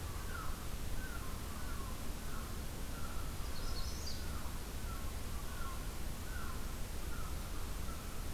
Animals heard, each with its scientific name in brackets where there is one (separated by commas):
American Herring Gull (Larus smithsonianus), Magnolia Warbler (Setophaga magnolia)